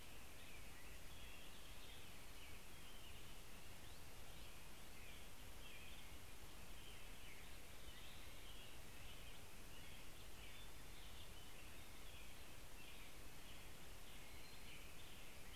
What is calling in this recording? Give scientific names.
Turdus migratorius